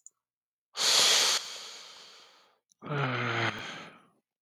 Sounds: Sigh